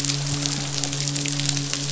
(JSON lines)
{"label": "biophony, midshipman", "recorder": "SoundTrap 500"}